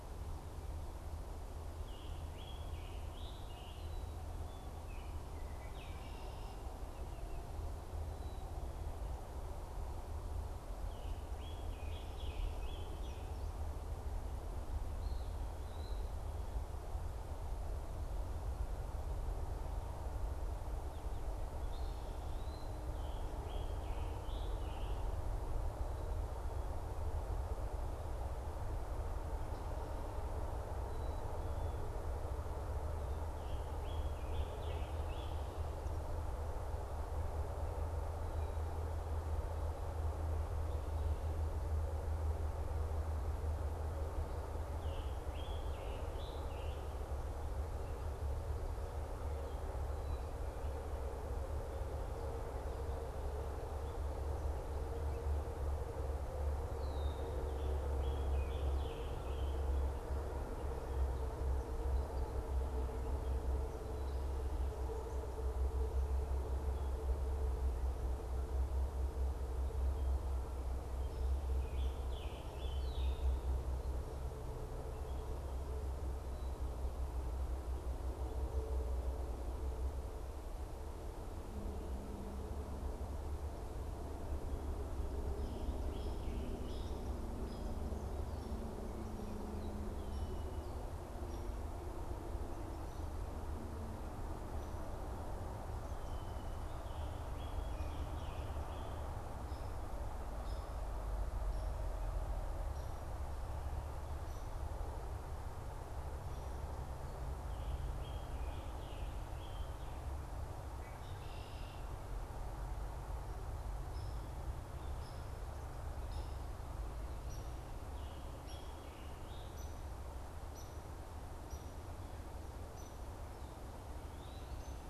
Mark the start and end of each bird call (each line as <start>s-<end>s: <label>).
1.8s-4.3s: Scarlet Tanager (Piranga olivacea)
4.8s-6.3s: Baltimore Oriole (Icterus galbula)
11.2s-13.3s: Scarlet Tanager (Piranga olivacea)
15.0s-16.2s: Eastern Wood-Pewee (Contopus virens)
21.6s-22.8s: Eastern Wood-Pewee (Contopus virens)
22.9s-25.1s: Scarlet Tanager (Piranga olivacea)
33.4s-35.4s: Scarlet Tanager (Piranga olivacea)
44.8s-46.9s: Scarlet Tanager (Piranga olivacea)
56.7s-57.5s: Red-winged Blackbird (Agelaius phoeniceus)
57.5s-59.9s: Scarlet Tanager (Piranga olivacea)
71.5s-73.4s: Scarlet Tanager (Piranga olivacea)
72.7s-73.3s: Red-winged Blackbird (Agelaius phoeniceus)
85.8s-87.2s: Scarlet Tanager (Piranga olivacea)
86.6s-91.6s: Hairy Woodpecker (Dryobates villosus)
96.7s-99.1s: Scarlet Tanager (Piranga olivacea)
107.8s-109.9s: Scarlet Tanager (Piranga olivacea)
110.7s-112.1s: Red-winged Blackbird (Agelaius phoeniceus)
113.9s-124.9s: Hairy Woodpecker (Dryobates villosus)
117.6s-119.8s: Scarlet Tanager (Piranga olivacea)